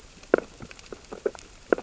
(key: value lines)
label: biophony, sea urchins (Echinidae)
recorder: SoundTrap 600 or HydroMoth